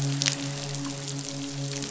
{"label": "biophony, midshipman", "recorder": "SoundTrap 500"}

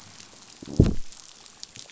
{"label": "biophony, growl", "recorder": "SoundTrap 500"}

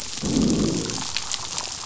{"label": "biophony, growl", "recorder": "SoundTrap 500"}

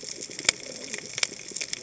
{"label": "biophony, cascading saw", "recorder": "HydroMoth"}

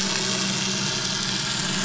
{"label": "anthrophony, boat engine", "recorder": "SoundTrap 500"}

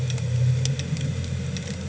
{"label": "anthrophony, boat engine", "recorder": "HydroMoth"}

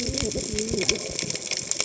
{"label": "biophony, cascading saw", "recorder": "HydroMoth"}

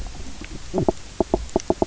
{"label": "biophony, knock croak", "recorder": "SoundTrap 300"}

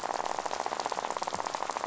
{"label": "biophony, rattle", "recorder": "SoundTrap 500"}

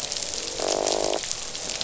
{"label": "biophony, croak", "recorder": "SoundTrap 500"}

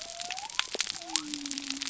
{"label": "biophony", "recorder": "SoundTrap 300"}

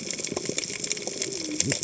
{"label": "biophony, cascading saw", "recorder": "HydroMoth"}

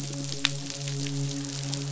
{"label": "biophony, midshipman", "recorder": "SoundTrap 500"}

